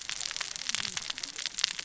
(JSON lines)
{"label": "biophony, cascading saw", "recorder": "SoundTrap 600 or HydroMoth"}